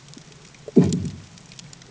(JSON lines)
{"label": "anthrophony, bomb", "recorder": "HydroMoth"}